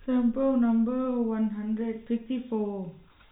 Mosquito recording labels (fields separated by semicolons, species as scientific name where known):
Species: no mosquito; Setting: cup